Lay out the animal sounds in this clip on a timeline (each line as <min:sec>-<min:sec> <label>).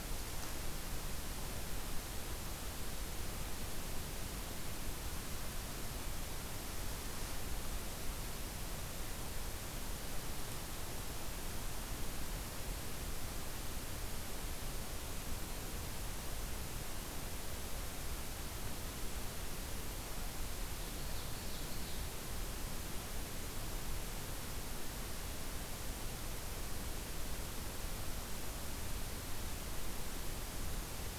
0:20.7-0:22.2 Ovenbird (Seiurus aurocapilla)